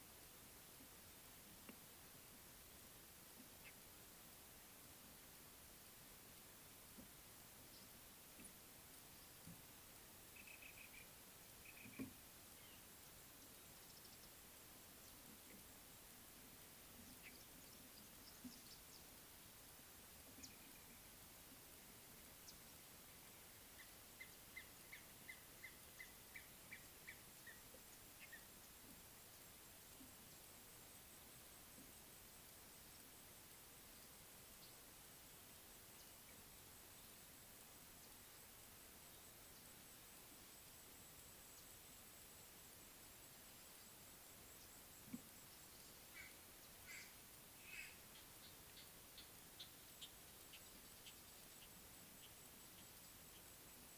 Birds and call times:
Black-throated Barbet (Tricholaema melanocephala): 10.7s, 11.9s
Red-fronted Tinkerbird (Pogoniulus pusillus): 25.7s
White-bellied Go-away-bird (Corythaixoides leucogaster): 47.0s, 49.2s

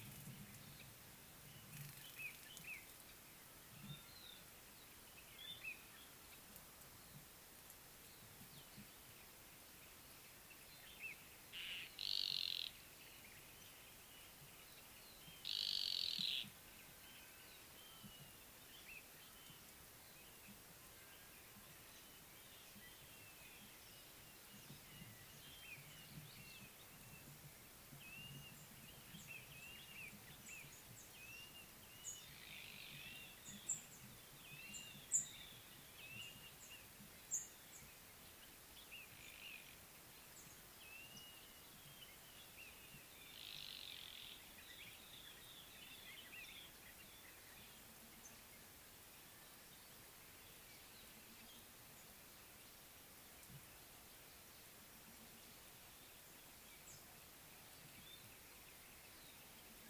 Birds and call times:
Common Bulbul (Pycnonotus barbatus): 2.8s
Yellow-breasted Apalis (Apalis flavida): 12.3s, 15.9s, 43.9s
Blue-naped Mousebird (Urocolius macrourus): 28.3s
Mariqua Sunbird (Cinnyris mariquensis): 35.2s

